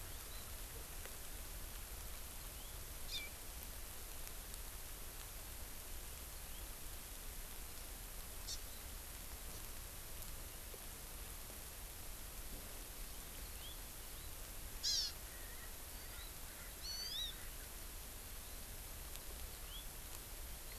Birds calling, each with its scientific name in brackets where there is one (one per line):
House Finch (Haemorhous mexicanus)
Erckel's Francolin (Pternistis erckelii)
Hawaii Amakihi (Chlorodrepanis virens)